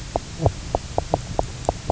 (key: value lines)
label: biophony, knock croak
recorder: SoundTrap 300